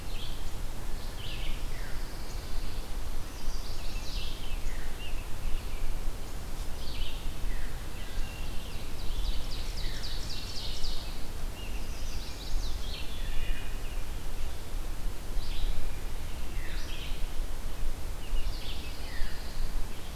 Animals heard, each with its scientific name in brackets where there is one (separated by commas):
Wood Thrush (Hylocichla mustelina), Chestnut-sided Warbler (Setophaga pensylvanica), Scarlet Tanager (Piranga olivacea), American Robin (Turdus migratorius), Ovenbird (Seiurus aurocapilla), Red-eyed Vireo (Vireo olivaceus), Pine Warbler (Setophaga pinus)